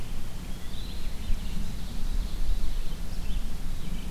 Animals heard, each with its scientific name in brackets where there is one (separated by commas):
Eastern Wood-Pewee (Contopus virens), Red-eyed Vireo (Vireo olivaceus), Ovenbird (Seiurus aurocapilla)